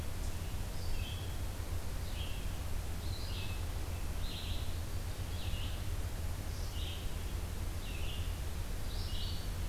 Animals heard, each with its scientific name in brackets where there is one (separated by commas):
Red-eyed Vireo (Vireo olivaceus)